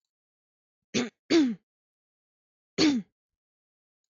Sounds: Throat clearing